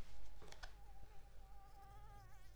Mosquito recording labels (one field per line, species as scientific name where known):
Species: Anopheles arabiensis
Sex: female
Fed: unfed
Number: one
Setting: cup